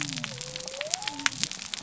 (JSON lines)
{"label": "biophony", "recorder": "SoundTrap 300"}